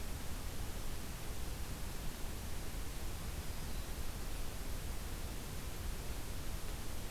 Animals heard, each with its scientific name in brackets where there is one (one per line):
Black-throated Green Warbler (Setophaga virens)